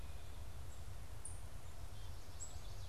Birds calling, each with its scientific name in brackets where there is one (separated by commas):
unidentified bird